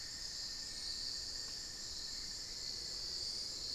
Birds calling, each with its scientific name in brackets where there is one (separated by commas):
Cinnamon-throated Woodcreeper (Dendrexetastes rufigula), Elegant Woodcreeper (Xiphorhynchus elegans), Hauxwell's Thrush (Turdus hauxwelli)